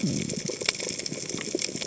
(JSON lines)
{"label": "biophony", "recorder": "HydroMoth"}